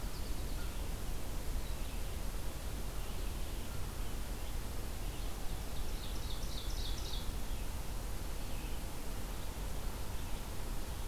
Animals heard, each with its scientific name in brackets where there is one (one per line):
American Crow (Corvus brachyrhynchos)
Red-eyed Vireo (Vireo olivaceus)
American Goldfinch (Spinus tristis)
Ovenbird (Seiurus aurocapilla)